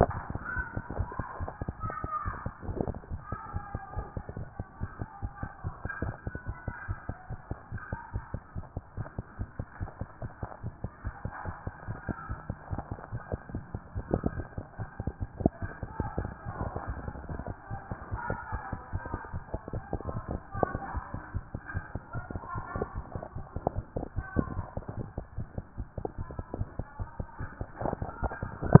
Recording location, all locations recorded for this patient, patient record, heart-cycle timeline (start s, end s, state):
tricuspid valve (TV)
aortic valve (AV)+pulmonary valve (PV)+tricuspid valve (TV)+mitral valve (MV)
#Age: Child
#Sex: Female
#Height: 103.0 cm
#Weight: 20.2 kg
#Pregnancy status: False
#Murmur: Absent
#Murmur locations: nan
#Most audible location: nan
#Systolic murmur timing: nan
#Systolic murmur shape: nan
#Systolic murmur grading: nan
#Systolic murmur pitch: nan
#Systolic murmur quality: nan
#Diastolic murmur timing: nan
#Diastolic murmur shape: nan
#Diastolic murmur grading: nan
#Diastolic murmur pitch: nan
#Diastolic murmur quality: nan
#Outcome: Normal
#Campaign: 2014 screening campaign
0.00	3.02	unannotated
3.02	3.10	diastole
3.10	3.20	S1
3.20	3.30	systole
3.30	3.38	S2
3.38	3.54	diastole
3.54	3.62	S1
3.62	3.75	systole
3.75	3.81	S2
3.81	3.96	diastole
3.96	4.06	S1
4.06	4.17	systole
4.17	4.22	S2
4.22	4.38	diastole
4.38	4.48	S1
4.48	4.59	systole
4.59	4.65	S2
4.65	4.80	diastole
4.80	4.90	S1
4.90	5.02	systole
5.02	5.07	S2
5.07	5.22	diastole
5.22	5.32	S1
5.32	5.43	systole
5.43	5.48	S2
5.48	5.64	diastole
5.64	5.73	S1
5.73	5.85	systole
5.85	5.90	S2
5.90	6.03	diastole
6.03	28.80	unannotated